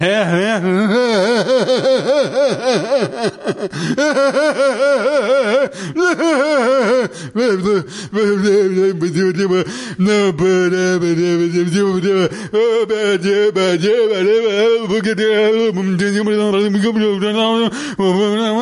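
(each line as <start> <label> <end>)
0.0 A man speaks in an unfamiliar language and laughs. 8.0
8.1 A man speaks energetically and excitedly in an unfamiliar language. 18.6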